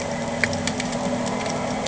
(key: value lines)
label: anthrophony, boat engine
recorder: HydroMoth